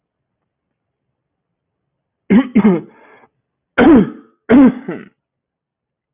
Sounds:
Cough